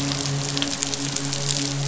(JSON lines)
{"label": "biophony, midshipman", "recorder": "SoundTrap 500"}